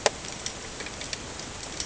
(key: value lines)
label: ambient
recorder: HydroMoth